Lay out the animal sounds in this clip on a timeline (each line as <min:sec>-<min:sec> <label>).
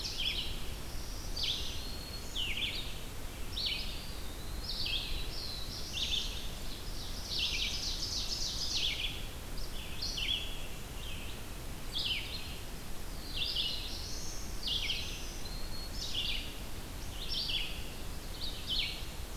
0:00.0-0:19.4 Red-eyed Vireo (Vireo olivaceus)
0:00.6-0:02.6 Black-throated Green Warbler (Setophaga virens)
0:03.7-0:05.3 Eastern Wood-Pewee (Contopus virens)
0:04.6-0:06.5 Black-throated Blue Warbler (Setophaga caerulescens)
0:06.6-0:09.3 Ovenbird (Seiurus aurocapilla)
0:13.1-0:14.7 Black-throated Blue Warbler (Setophaga caerulescens)
0:14.5-0:16.3 Black-throated Green Warbler (Setophaga virens)